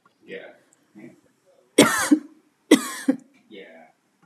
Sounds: Cough